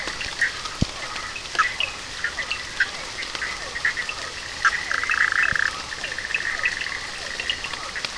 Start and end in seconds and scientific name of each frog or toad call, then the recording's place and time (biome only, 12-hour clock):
0.0	0.6	Elachistocleis bicolor
0.0	8.1	Boana bischoffi
0.0	8.1	Boana prasina
0.0	8.1	Physalaemus cuvieri
1.6	8.1	Sphaenorhynchus surdus
3.8	8.1	Elachistocleis bicolor
Atlantic Forest, 12:30am